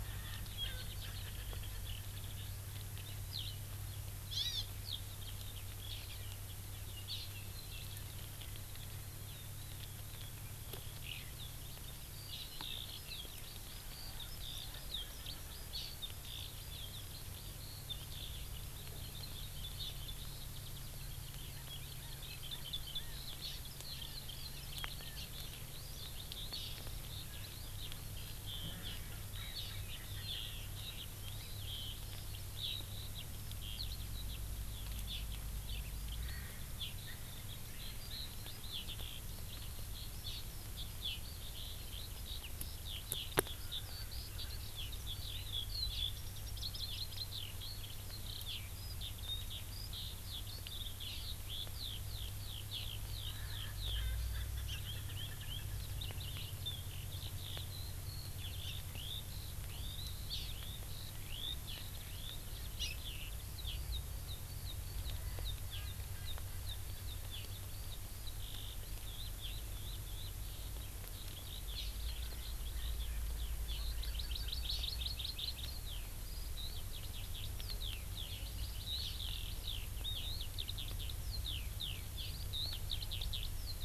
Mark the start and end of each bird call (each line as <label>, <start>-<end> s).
Erckel's Francolin (Pternistis erckelii), 0.0-2.5 s
Eurasian Skylark (Alauda arvensis), 3.3-3.6 s
Hawaii Amakihi (Chlorodrepanis virens), 4.3-4.7 s
Eurasian Skylark (Alauda arvensis), 4.8-83.8 s
Hawaii Amakihi (Chlorodrepanis virens), 7.1-7.3 s
Hawaii Amakihi (Chlorodrepanis virens), 12.3-12.5 s
Erckel's Francolin (Pternistis erckelii), 14.0-15.4 s
Hawaii Amakihi (Chlorodrepanis virens), 15.7-16.0 s
Hawaii Amakihi (Chlorodrepanis virens), 23.4-23.6 s
Hawaii Amakihi (Chlorodrepanis virens), 26.5-26.8 s
Erckel's Francolin (Pternistis erckelii), 28.7-30.6 s
Hawaii Amakihi (Chlorodrepanis virens), 29.5-29.8 s
Hawaii Amakihi (Chlorodrepanis virens), 35.1-35.3 s
Erckel's Francolin (Pternistis erckelii), 36.2-38.6 s
Hawaii Amakihi (Chlorodrepanis virens), 40.2-40.4 s
Erckel's Francolin (Pternistis erckelii), 53.2-55.8 s
Hawaii Amakihi (Chlorodrepanis virens), 60.3-60.5 s
Hawaii Amakihi (Chlorodrepanis virens), 62.8-63.0 s
Erckel's Francolin (Pternistis erckelii), 65.3-67.1 s
Hawaii Amakihi (Chlorodrepanis virens), 71.7-71.9 s
Hawaii Amakihi (Chlorodrepanis virens), 73.9-75.7 s